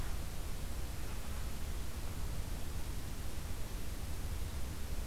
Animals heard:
forest ambience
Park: Acadia National Park